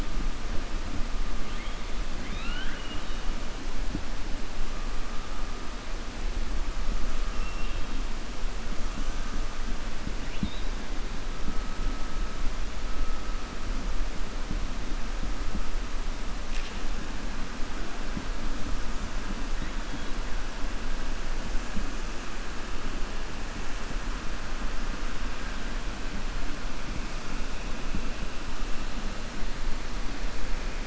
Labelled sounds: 2.1	3.2	killer whale, 1.3 to 4.3 kHz
7.3	8.0	killer whale, 2.6 to 3.8 kHz
10.2	10.7	killer whale, 1.9 to 4.9 kHz

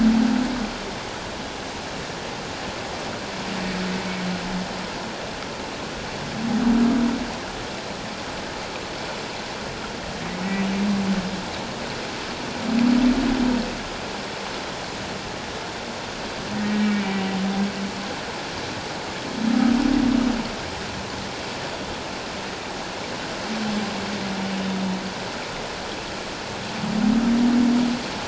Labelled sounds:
16.5	16.9	humpback whale, 1.8 to 1.9 kHz

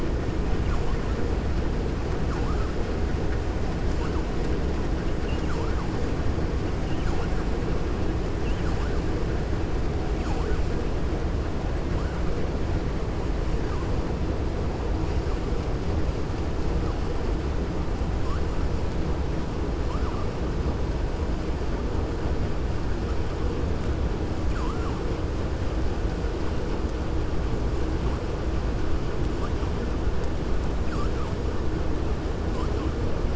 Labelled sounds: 5.1	5.8	vessel noise, 0.51 to 3.7 kHz
8.3	8.9	vessel noise, 0.81 to 3.2 kHz
24.4	25.0	vessel noise, 0.74 to 2.7 kHz
30.8	31.3	vessel noise, 0.87 to 2.5 kHz

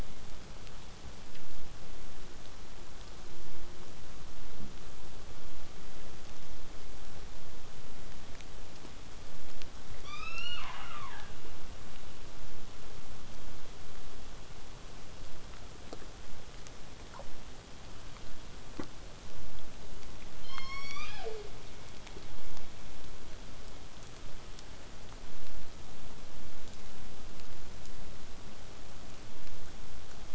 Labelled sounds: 10.0	11.5	killer whale, southern resident, 0.22 to 8.0 kHz
20.4	21.5	killer whale, southern resident, J pod, call S01, 0.29 to 8.0 kHz

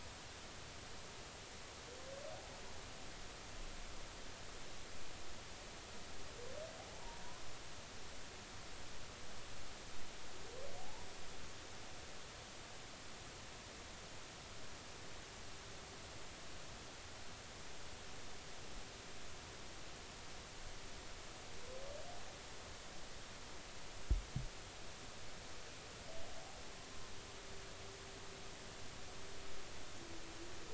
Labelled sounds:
7.0	7.4	humpback whale, 0.86 to 1.2 kHz
10.8	11.1	humpback whale, 0.80 to 0.99 kHz

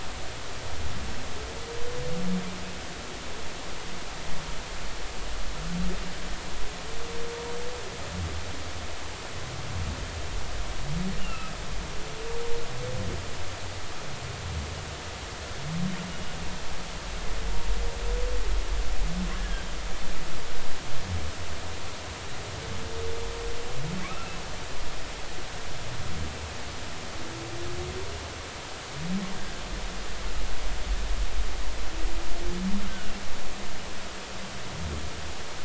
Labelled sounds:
11.2	11.5	humpback whale, 2.5 to 2.9 kHz
19.4	19.6	humpback whale, 1.5 to 1.8 kHz
24.0	24.4	humpback whale, 1.2 to 2.8 kHz
32.9	33.1	humpback whale, 1.4 to 1.6 kHz

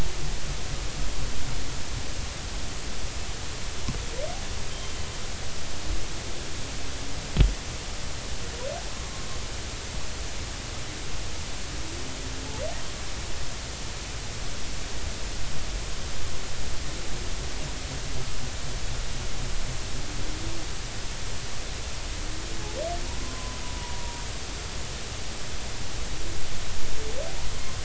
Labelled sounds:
4.7	5.0	humpback whale, 3.0 to 3.3 kHz
23.2	24.2	humpback whale, 0.86 to 1.1 kHz

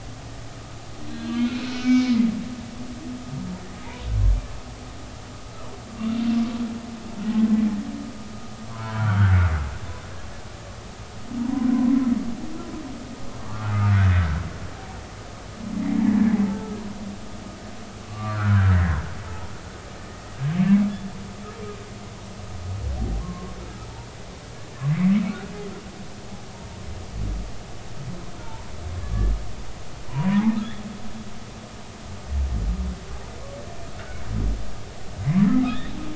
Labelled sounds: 1.1	2.2	humpback whale, 1.4 to 4.3 kHz
8.7	9.4	humpback whale, 0.86 to 3.3 kHz
11.4	11.7	humpback whale, 0.90 to 1.1 kHz
13.4	14.4	humpback whale, 1.1 to 1.6 kHz
16.5	16.8	humpback whale, 1.2 to 1.4 kHz
18.1	18.7	humpback whale, 1.1 to 1.7 kHz
19.2	19.5	humpback whale, 0.83 to 0.99 kHz
20.6	20.9	humpback whale, 2.1 to 2.3 kHz
23.2	23.5	humpback whale, 1.0 to 1.2 kHz
28.4	28.7	humpback whale, 0.83 to 1.0 kHz
30.1	30.5	humpback whale, 0.90 to 1.1 kHz
35.6	36.0	humpback whale, 3.2 to 3.8 kHz

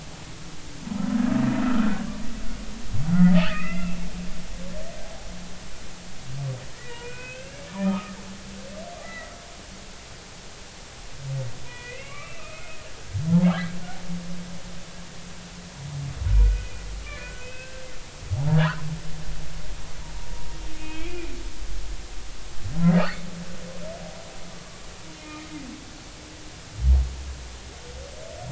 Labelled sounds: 1.6	2.0	humpback whale, 1.2 to 1.6 kHz
3.4	4.0	humpback whale, 1.2 to 2.8 kHz
6.8	9.3	humpback whale, 0.86 to 3.0 kHz
11.7	13.2	humpback whale, 1.1 to 2.8 kHz
16.3	17.8	humpback whale, 1.4 to 2.7 kHz
18.5	18.7	humpback whale, 1.5 to 1.8 kHz
20.8	21.3	humpback whale, 2.1 to 2.7 kHz
25.2	25.5	humpback whale, 2.3 to 2.5 kHz

